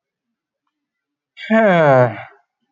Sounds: Sigh